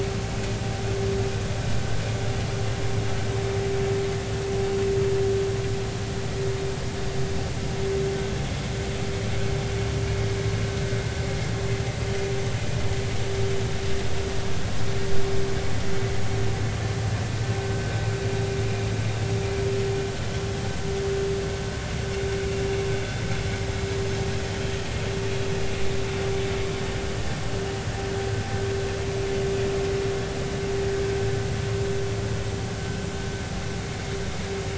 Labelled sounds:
17.7	17.9	vessel noise, 1.5 to 1.6 kHz

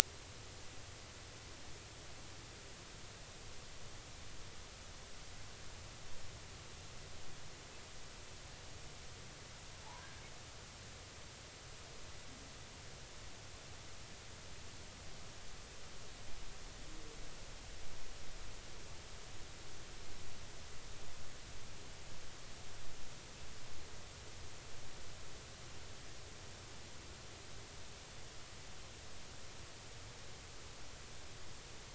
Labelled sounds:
9.8	10.1	humpback whale, 0.80 to 1.2 kHz

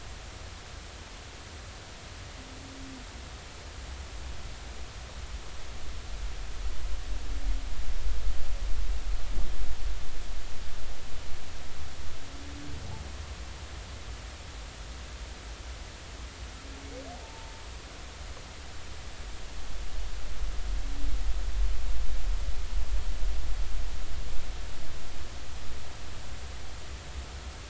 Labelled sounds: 17.2	17.6	humpback whale, 0.86 to 1.0 kHz

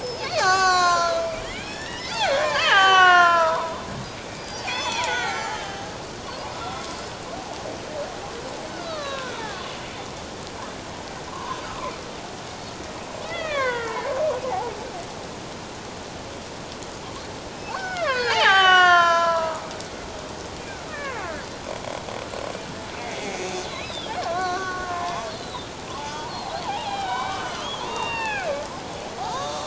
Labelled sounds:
0.0	3.9	killer whale, Bigg's (transient), 0.78 to 7.4 kHz
4.4	5.9	killer whale, Bigg's (transient), 0.78 to 7.4 kHz
6.2	6.8	killer whale, Bigg's (transient), 0.94 to 1.4 kHz
8.7	9.7	killer whale, Bigg's (transient), 0.97 to 4.6 kHz
11.3	11.9	killer whale, Bigg's (transient), 0.91 to 1.5 kHz
13.2	14.2	killer whale, Bigg's (transient), 0.81 to 3.9 kHz
17.7	20.1	killer whale, Bigg's (transient), 0.78 to 7.0 kHz
20.9	21.2	killer whale, Bigg's (transient), 1.0 to 2.5 kHz
23.0	25.7	killer whale, Bigg's (transient), 0.78 to 8.0 kHz
26.0	29.6	killer whale, Bigg's (transient), 0.78 to 4.7 kHz

